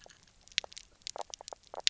{"label": "biophony, knock croak", "recorder": "SoundTrap 300"}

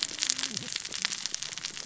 {"label": "biophony, cascading saw", "recorder": "SoundTrap 600 or HydroMoth"}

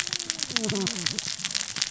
{"label": "biophony, cascading saw", "recorder": "SoundTrap 600 or HydroMoth"}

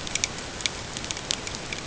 {"label": "ambient", "recorder": "HydroMoth"}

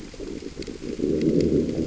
{"label": "biophony, growl", "recorder": "SoundTrap 600 or HydroMoth"}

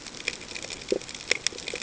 {"label": "ambient", "recorder": "HydroMoth"}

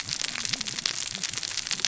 {"label": "biophony, cascading saw", "recorder": "SoundTrap 600 or HydroMoth"}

